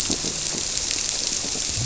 {"label": "biophony", "recorder": "SoundTrap 300"}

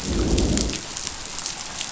{"label": "biophony, growl", "recorder": "SoundTrap 500"}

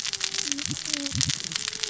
{"label": "biophony, cascading saw", "recorder": "SoundTrap 600 or HydroMoth"}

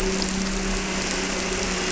{"label": "anthrophony, boat engine", "recorder": "SoundTrap 300"}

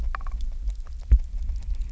{"label": "biophony, grazing", "recorder": "SoundTrap 300"}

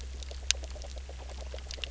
{"label": "biophony, grazing", "recorder": "SoundTrap 300"}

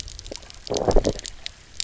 {"label": "biophony, low growl", "recorder": "SoundTrap 300"}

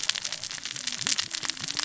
{"label": "biophony, cascading saw", "recorder": "SoundTrap 600 or HydroMoth"}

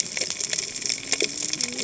{"label": "biophony, cascading saw", "recorder": "HydroMoth"}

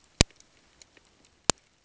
{"label": "ambient", "recorder": "HydroMoth"}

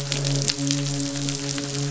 {"label": "biophony, midshipman", "recorder": "SoundTrap 500"}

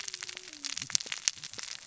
{"label": "biophony, cascading saw", "recorder": "SoundTrap 600 or HydroMoth"}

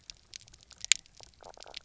{"label": "biophony, knock croak", "recorder": "SoundTrap 300"}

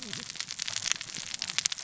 {"label": "biophony, cascading saw", "recorder": "SoundTrap 600 or HydroMoth"}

